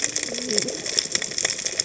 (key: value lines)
label: biophony, cascading saw
recorder: HydroMoth